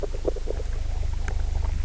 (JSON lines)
{"label": "biophony, grazing", "recorder": "SoundTrap 300"}